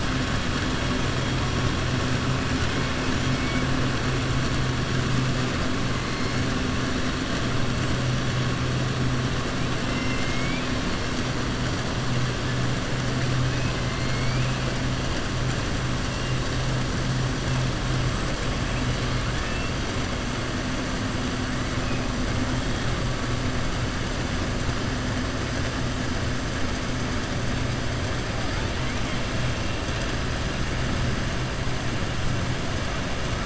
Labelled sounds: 9.8	10.7	killer whale, southern resident, 2.0 to 3.5 kHz
14.0	14.6	killer whale, southern resident, 2.1 to 2.8 kHz
19.3	19.7	killer whale, southern resident, 1.7 to 3.6 kHz

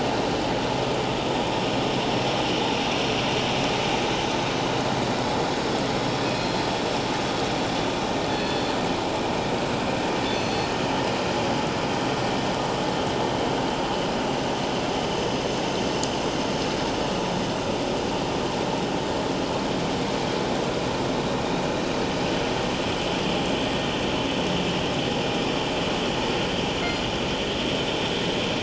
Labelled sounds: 6.2	6.7	killer whale, northern resident, G clan, 2.4 to 4.3 kHz
8.3	8.7	killer whale, northern resident, G clan, 1.7 to 4.4 kHz
10.3	10.7	killer whale, northern resident, G clan, 4.2 to 6.2 kHz

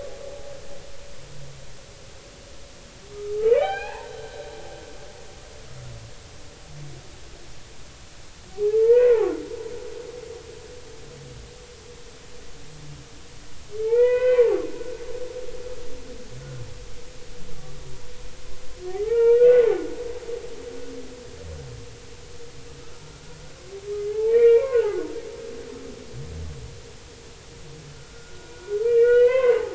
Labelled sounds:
3.3	4.1	humpback whale, 0.80 to 4.4 kHz
8.5	9.3	humpback whale, 0.80 to 2.7 kHz
13.8	14.5	humpback whale, 0.83 to 3.1 kHz
19.0	19.7	humpback whale, 0.80 to 2.9 kHz
24.0	24.8	humpback whale, 0.90 to 2.5 kHz
27.9	29.6	humpback whale, 0.96 to 3.2 kHz

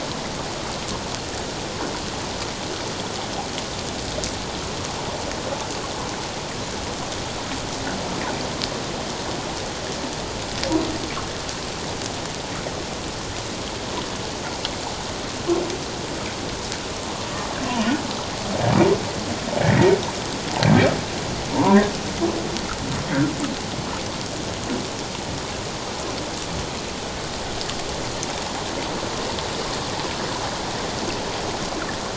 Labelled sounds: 21.5	21.9	humpback whale, 0.88 to 1.1 kHz

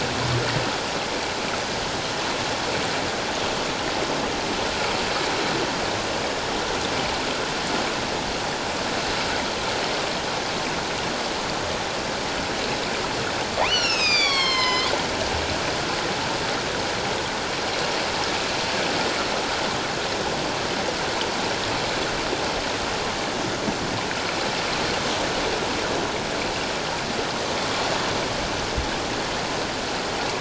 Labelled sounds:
13.6	14.9	killer whale, northern resident, A clan, AA subclan, A04 pod, call N04, 0.94 to 7.7 kHz

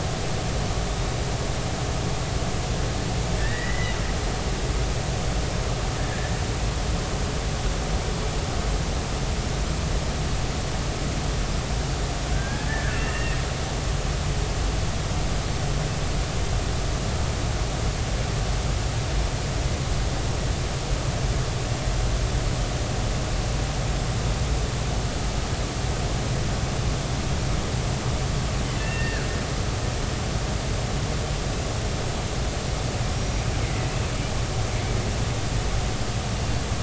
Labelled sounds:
3.4	4.0	killer whale, Bigg's (transient), 1.5 to 2.0 kHz
6.0	6.3	killer whale, Bigg's (transient), 1.6 to 1.8 kHz
12.3	13.4	killer whale, Bigg's (transient), 1.3 to 2.8 kHz
28.8	29.3	killer whale, Bigg's (transient), 1.4 to 2.8 kHz
33.2	33.4	killer whale, Bigg's (transient), 5.7 to 5.9 kHz

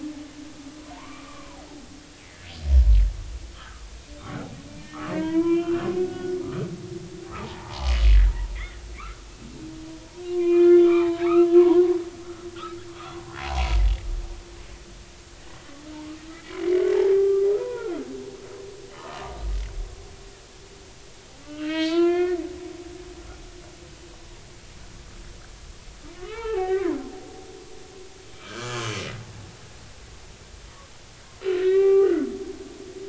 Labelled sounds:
0.8	1.6	humpback whale, 0.86 to 1.3 kHz
3.5	3.9	humpback whale, 1.0 to 1.4 kHz
4.7	6.7	humpback whale, 0.86 to 3.2 kHz
7.4	8.8	humpback whale, 0.80 to 2.3 kHz
10.3	11.8	humpback whale, 0.80 to 4.2 kHz
12.9	13.8	humpback whale, 0.80 to 3.5 kHz
17.1	18.0	humpback whale, 0.86 to 1.5 kHz
19.0	19.4	humpback whale, 0.93 to 1.3 kHz
21.4	22.4	humpback whale, 0.90 to 4.8 kHz
26.2	27.0	humpback whale, 0.80 to 3.2 kHz
28.3	28.9	humpback whale, 0.99 to 1.7 kHz
31.5	32.4	humpback whale, 0.80 to 3.2 kHz

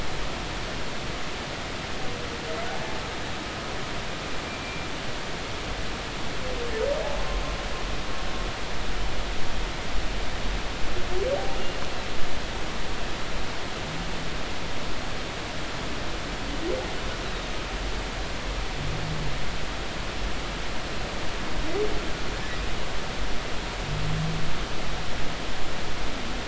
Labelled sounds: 5.6	5.9	humpback whale, 2.3 to 2.4 kHz

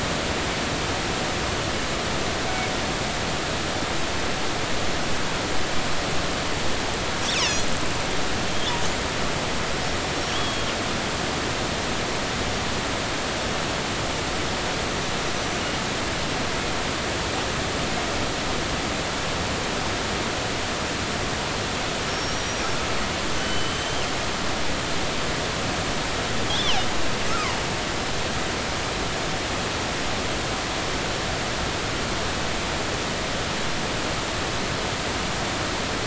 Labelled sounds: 2.5	2.7	killer whale, northern resident, G clan, 2.1 to 2.4 kHz
7.3	7.6	killer whale, northern resident, G clan, 4.8 to 5.9 kHz
10.3	10.7	killer whale, northern resident, G clan, 2.9 to 3.4 kHz
22.1	22.6	killer whale, northern resident, G clan, 5.4 to 5.8 kHz
23.4	24.0	killer whale, northern resident, G clan, 2.9 to 3.2 kHz
27.3	27.6	killer whale, northern resident, G clan, 0.90 to 1.4 kHz

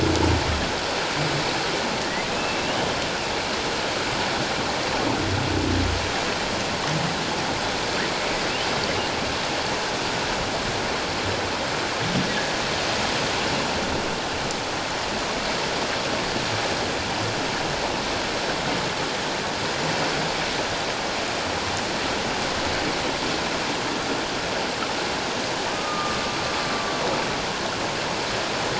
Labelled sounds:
2.3	2.9	humpback whale, 2.5 to 3.1 kHz
25.7	26.2	humpback whale, 1.2 to 1.3 kHz

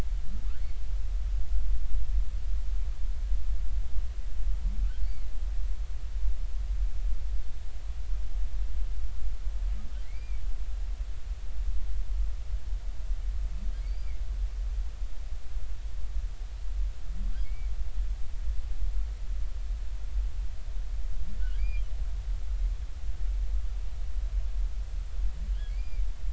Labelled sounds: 10.0	10.4	humpback whale, 1.9 to 2.5 kHz
13.8	14.2	humpback whale, 2.1 to 4.8 kHz
17.4	17.7	humpback whale, 2.1 to 2.4 kHz
21.4	21.8	humpback whale, 1.4 to 3.3 kHz
25.7	26.1	humpback whale, 2.1 to 4.9 kHz

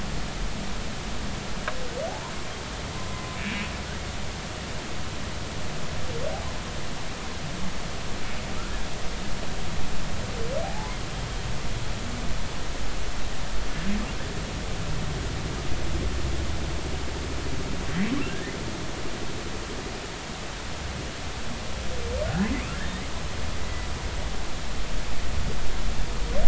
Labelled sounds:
2.1	2.3	humpback whale, 0.80 to 1.1 kHz
3.1	3.7	humpback whale, 0.96 to 2.7 kHz
10.6	10.9	humpback whale, 0.80 to 1.1 kHz
22.2	22.5	humpback whale, 1.4 to 1.8 kHz
23.6	23.9	humpback whale, 1.9 to 2.0 kHz

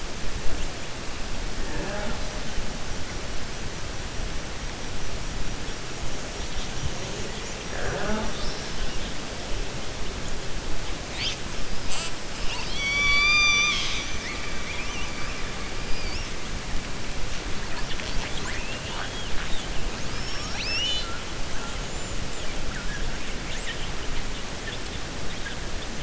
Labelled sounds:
12.3	14.3	killer whale, 1.1 to 7.1 kHz

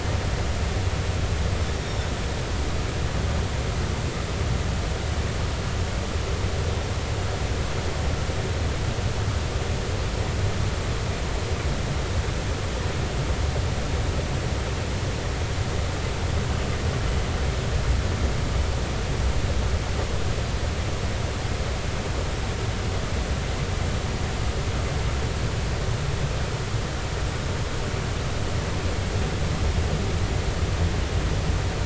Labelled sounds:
1.8	2.0	killer whale, northern resident, 5.4 to 5.7 kHz

